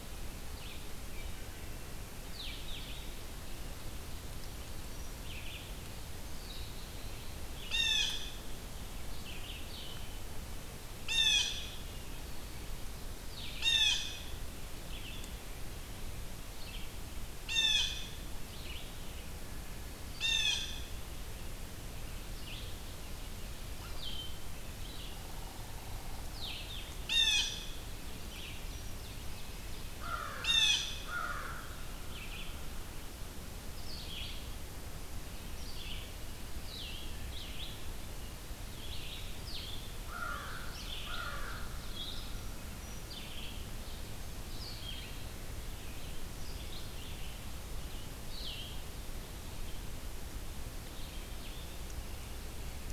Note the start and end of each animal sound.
[0.00, 1.34] Red-eyed Vireo (Vireo olivaceus)
[0.00, 3.10] Blue-headed Vireo (Vireo solitarius)
[5.04, 52.92] Red-eyed Vireo (Vireo olivaceus)
[6.08, 7.48] Black-capped Chickadee (Poecile atricapillus)
[7.54, 8.50] Blue Jay (Cyanocitta cristata)
[10.92, 11.93] Blue Jay (Cyanocitta cristata)
[13.16, 51.82] Blue-headed Vireo (Vireo solitarius)
[13.51, 14.28] Blue Jay (Cyanocitta cristata)
[17.29, 18.15] Blue Jay (Cyanocitta cristata)
[20.05, 21.15] Blue Jay (Cyanocitta cristata)
[24.97, 26.25] Northern Flicker (Colaptes auratus)
[26.74, 27.87] Blue Jay (Cyanocitta cristata)
[27.85, 29.95] Ovenbird (Seiurus aurocapilla)
[29.87, 31.89] American Crow (Corvus brachyrhynchos)
[30.11, 31.31] Blue Jay (Cyanocitta cristata)
[39.94, 42.03] American Crow (Corvus brachyrhynchos)

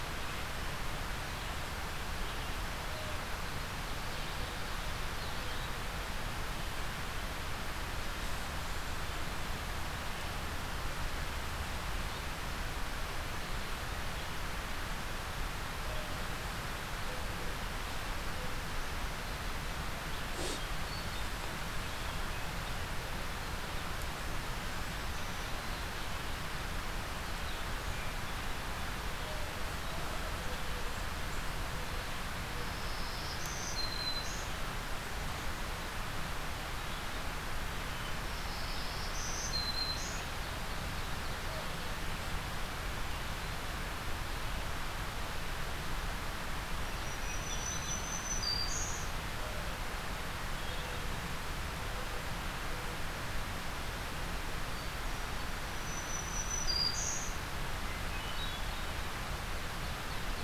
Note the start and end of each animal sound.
[20.34, 21.46] Hermit Thrush (Catharus guttatus)
[32.53, 34.54] Black-throated Green Warbler (Setophaga virens)
[38.12, 40.26] Black-throated Green Warbler (Setophaga virens)
[46.86, 49.27] Black-throated Green Warbler (Setophaga virens)
[47.05, 48.18] Hermit Thrush (Catharus guttatus)
[54.31, 55.63] Hermit Thrush (Catharus guttatus)
[55.70, 57.52] Black-throated Green Warbler (Setophaga virens)
[58.01, 58.96] Hermit Thrush (Catharus guttatus)

